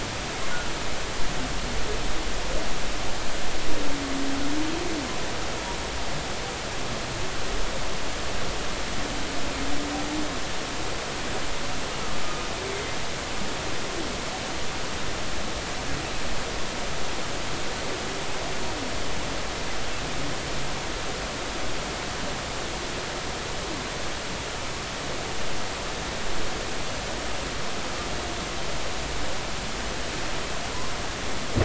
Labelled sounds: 12.2	12.5	humpback whale, 1.2 to 1.3 kHz
12.7	13.0	humpback whale, 2.0 to 2.2 kHz

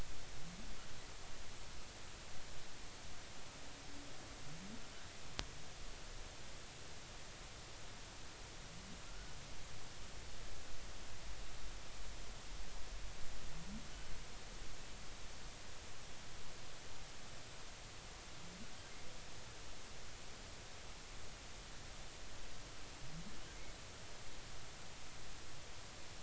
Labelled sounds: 9.1	9.3	humpback whale, 1.3 to 1.5 kHz

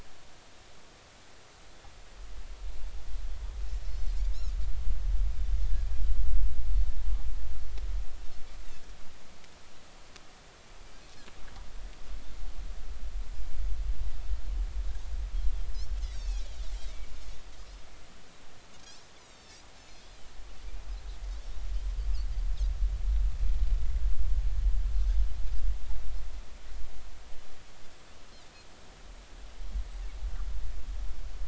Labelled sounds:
3.0	3.2	Pacific white-sided dolphin, 5.3 to 5.4 kHz
16.0	17.1	Pacific white-sided dolphin, 2.0 to 6.0 kHz
19.2	20.2	Pacific white-sided dolphin, 3.4 to 7.2 kHz

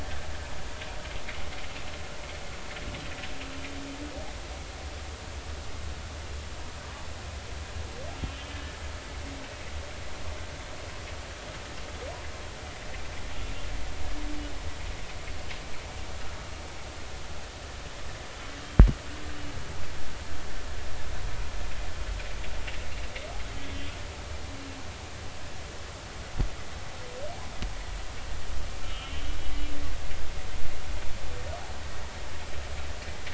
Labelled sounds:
23.8	24.0	humpback whale, 2.8 to 2.9 kHz
28.8	29.3	humpback whale, 1.3 to 3.3 kHz

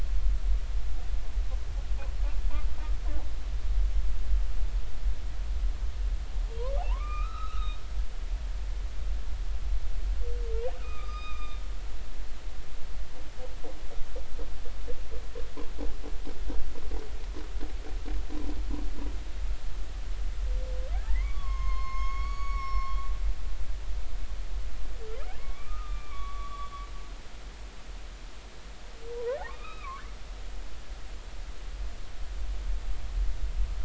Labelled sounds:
6.6	7.8	humpback whale, 0.80 to 4.0 kHz
10.8	11.6	humpback whale, 1.1 to 5.0 kHz
21.1	23.0	humpback whale, 0.96 to 6.8 kHz
25.4	26.7	humpback whale, 1.0 to 3.5 kHz
29.1	30.0	humpback whale, 0.80 to 3.9 kHz

